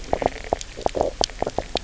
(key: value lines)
label: biophony, low growl
recorder: SoundTrap 300